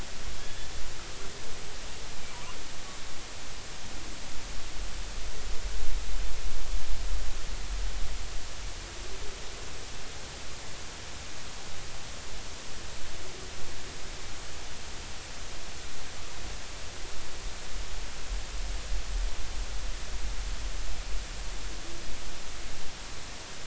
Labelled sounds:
0.4	0.7	killer whale, northern resident, G clan, GG subclan, 1.6 to 3.5 kHz

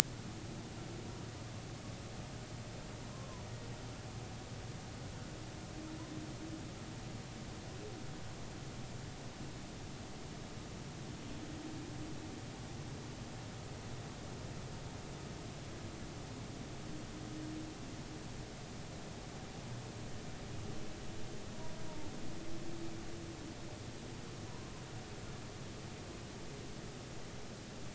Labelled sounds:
24.5	24.7	humpback whale, 0.93 to 1.2 kHz

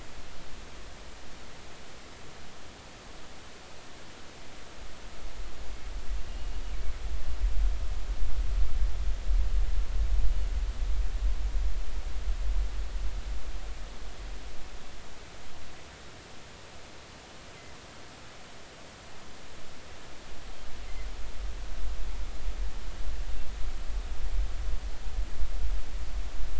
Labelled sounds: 6.3	6.6	killer whale, northern resident, G clan, GG subclan, call N23ii, 2.8 to 2.9 kHz

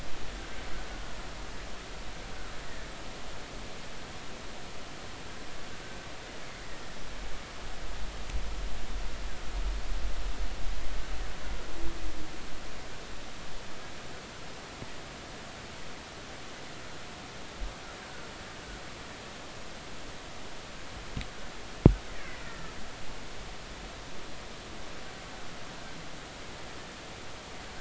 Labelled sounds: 22.4	22.7	killer whale, Bigg's (transient), 1.2 to 1.5 kHz
23.1	23.7	killer whale, Bigg's (transient), 1.7 to 2.4 kHz

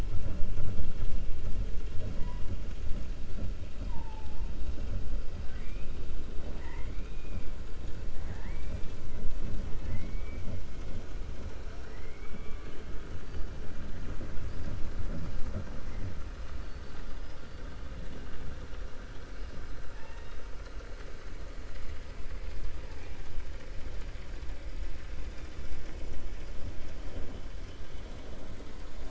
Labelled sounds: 5.4	5.9	killer whale, 0.75 to 3.5 kHz
11.7	12.8	killer whale, 0.70 to 3.5 kHz
16.6	17.6	killer whale, 3.6 to 5.7 kHz
19.9	20.4	killer whale, 0.86 to 3.8 kHz

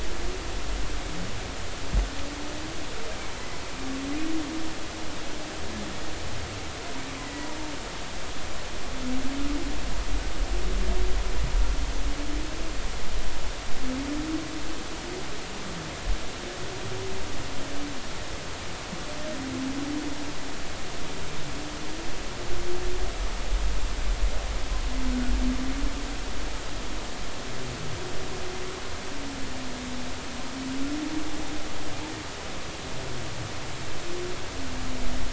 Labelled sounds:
7.2	7.5	humpback whale, 1.9 to 2.0 kHz

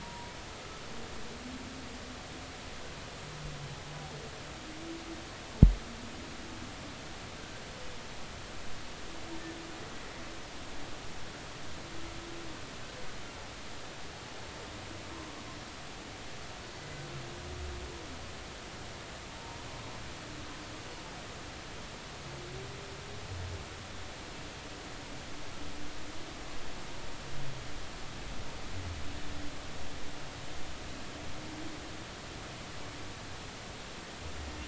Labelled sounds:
0.0	0.3	humpback whale, 0.90 to 1.0 kHz

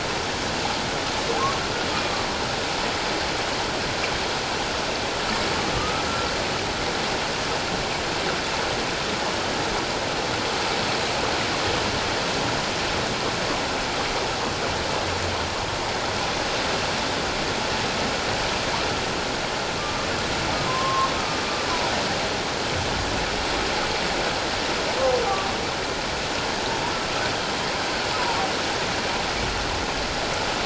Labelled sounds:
5.8	6.0	humpback whale, 1.1 to 1.3 kHz
19.8	20.1	humpback whale, 1.1 to 1.2 kHz
20.7	21.1	humpback whale, 0.97 to 1.1 kHz

